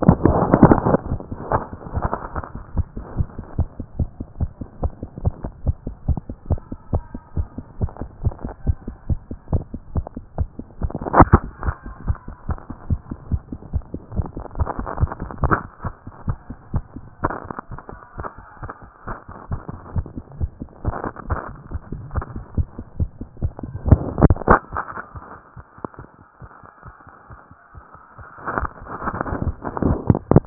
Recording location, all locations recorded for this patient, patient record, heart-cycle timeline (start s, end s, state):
tricuspid valve (TV)
aortic valve (AV)+pulmonary valve (PV)+tricuspid valve (TV)+mitral valve (MV)
#Age: Adolescent
#Sex: Female
#Height: 163.0 cm
#Weight: 45.8 kg
#Pregnancy status: False
#Murmur: Absent
#Murmur locations: nan
#Most audible location: nan
#Systolic murmur timing: nan
#Systolic murmur shape: nan
#Systolic murmur grading: nan
#Systolic murmur pitch: nan
#Systolic murmur quality: nan
#Diastolic murmur timing: nan
#Diastolic murmur shape: nan
#Diastolic murmur grading: nan
#Diastolic murmur pitch: nan
#Diastolic murmur quality: nan
#Outcome: Abnormal
#Campaign: 2014 screening campaign
0.00	2.76	unannotated
2.76	2.86	S1
2.86	2.96	systole
2.96	3.04	S2
3.04	3.16	diastole
3.16	3.28	S1
3.28	3.36	systole
3.36	3.44	S2
3.44	3.58	diastole
3.58	3.68	S1
3.68	3.78	systole
3.78	3.86	S2
3.86	3.98	diastole
3.98	4.08	S1
4.08	4.18	systole
4.18	4.26	S2
4.26	4.40	diastole
4.40	4.50	S1
4.50	4.60	systole
4.60	4.68	S2
4.68	4.82	diastole
4.82	4.92	S1
4.92	5.00	systole
5.00	5.08	S2
5.08	5.22	diastole
5.22	5.34	S1
5.34	5.42	systole
5.42	5.52	S2
5.52	5.64	diastole
5.64	5.76	S1
5.76	5.86	systole
5.86	5.94	S2
5.94	6.08	diastole
6.08	6.20	S1
6.20	6.28	systole
6.28	6.36	S2
6.36	6.50	diastole
6.50	6.60	S1
6.60	6.70	systole
6.70	6.78	S2
6.78	6.92	diastole
6.92	7.02	S1
7.02	7.12	systole
7.12	7.20	S2
7.20	7.36	diastole
7.36	7.48	S1
7.48	7.56	systole
7.56	7.64	S2
7.64	7.80	diastole
7.80	7.90	S1
7.90	8.00	systole
8.00	8.08	S2
8.08	8.22	diastole
8.22	8.34	S1
8.34	8.44	systole
8.44	8.52	S2
8.52	8.66	diastole
8.66	8.76	S1
8.76	8.86	systole
8.86	8.94	S2
8.94	9.08	diastole
9.08	9.20	S1
9.20	9.30	systole
9.30	9.38	S2
9.38	9.52	diastole
9.52	9.64	S1
9.64	9.72	systole
9.72	9.80	S2
9.80	9.94	diastole
9.94	10.06	S1
10.06	10.14	systole
10.14	10.24	S2
10.24	10.38	diastole
10.38	10.48	S1
10.48	10.58	systole
10.58	10.66	S2
10.66	10.81	diastole
10.81	30.46	unannotated